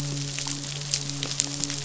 {"label": "biophony, midshipman", "recorder": "SoundTrap 500"}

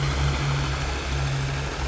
{"label": "anthrophony, boat engine", "recorder": "SoundTrap 500"}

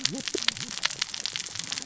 {"label": "biophony, cascading saw", "recorder": "SoundTrap 600 or HydroMoth"}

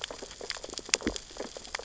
{"label": "biophony, sea urchins (Echinidae)", "recorder": "SoundTrap 600 or HydroMoth"}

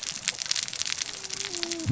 {"label": "biophony, cascading saw", "recorder": "SoundTrap 600 or HydroMoth"}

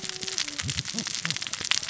{"label": "biophony, cascading saw", "recorder": "SoundTrap 600 or HydroMoth"}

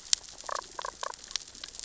{"label": "biophony, damselfish", "recorder": "SoundTrap 600 or HydroMoth"}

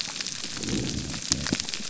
{"label": "biophony", "recorder": "SoundTrap 300"}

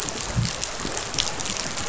{"label": "biophony", "recorder": "SoundTrap 500"}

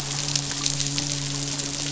{"label": "biophony, midshipman", "recorder": "SoundTrap 500"}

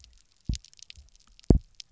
{"label": "biophony, double pulse", "recorder": "SoundTrap 300"}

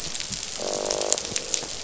{"label": "biophony, croak", "recorder": "SoundTrap 500"}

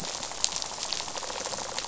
{"label": "biophony, rattle", "recorder": "SoundTrap 500"}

